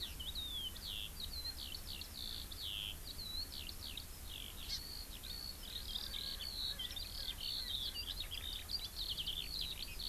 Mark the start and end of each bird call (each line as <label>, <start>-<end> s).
Erckel's Francolin (Pternistis erckelii), 0.0-0.2 s
Eurasian Skylark (Alauda arvensis), 0.0-10.1 s
Erckel's Francolin (Pternistis erckelii), 0.7-0.9 s
Erckel's Francolin (Pternistis erckelii), 1.4-1.6 s
Hawaii Amakihi (Chlorodrepanis virens), 4.7-4.8 s
Erckel's Francolin (Pternistis erckelii), 5.2-8.5 s